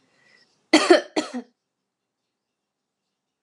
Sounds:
Cough